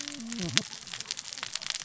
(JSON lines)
{"label": "biophony, cascading saw", "recorder": "SoundTrap 600 or HydroMoth"}